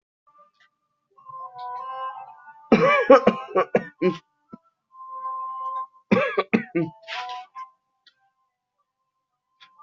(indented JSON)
{
  "expert_labels": [
    {
      "quality": "good",
      "cough_type": "dry",
      "dyspnea": false,
      "wheezing": false,
      "stridor": false,
      "choking": false,
      "congestion": false,
      "nothing": true,
      "diagnosis": "upper respiratory tract infection",
      "severity": "mild"
    }
  ]
}